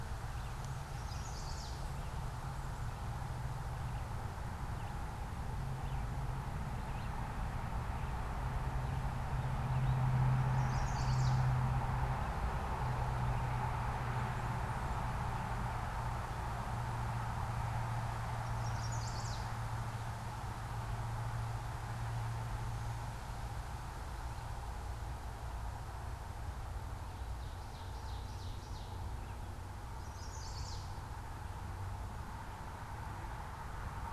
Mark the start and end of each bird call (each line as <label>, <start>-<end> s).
Red-eyed Vireo (Vireo olivaceus), 0.0-10.2 s
Chestnut-sided Warbler (Setophaga pensylvanica), 0.8-2.0 s
Chestnut-sided Warbler (Setophaga pensylvanica), 10.3-11.5 s
Chestnut-sided Warbler (Setophaga pensylvanica), 18.3-19.6 s
Ovenbird (Seiurus aurocapilla), 27.2-29.1 s
Chestnut-sided Warbler (Setophaga pensylvanica), 29.8-31.0 s